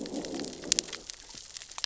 {"label": "biophony, growl", "recorder": "SoundTrap 600 or HydroMoth"}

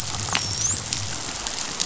{"label": "biophony, dolphin", "recorder": "SoundTrap 500"}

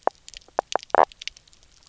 {"label": "biophony, knock croak", "recorder": "SoundTrap 300"}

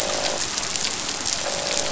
{"label": "biophony, croak", "recorder": "SoundTrap 500"}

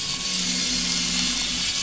{"label": "anthrophony, boat engine", "recorder": "SoundTrap 500"}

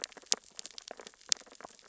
{"label": "biophony, sea urchins (Echinidae)", "recorder": "SoundTrap 600 or HydroMoth"}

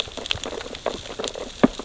{"label": "biophony, sea urchins (Echinidae)", "recorder": "SoundTrap 600 or HydroMoth"}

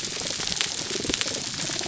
{"label": "biophony", "recorder": "SoundTrap 300"}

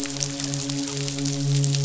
{"label": "biophony, midshipman", "recorder": "SoundTrap 500"}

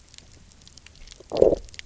{"label": "biophony, low growl", "recorder": "SoundTrap 300"}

